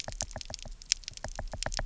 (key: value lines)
label: biophony, knock
recorder: SoundTrap 300